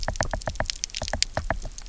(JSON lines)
{"label": "biophony, knock", "recorder": "SoundTrap 300"}